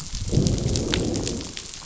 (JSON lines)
{"label": "biophony, growl", "recorder": "SoundTrap 500"}